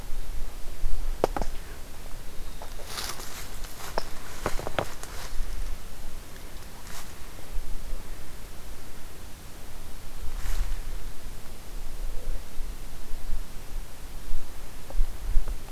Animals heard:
forest ambience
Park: Hubbard Brook Experimental Forest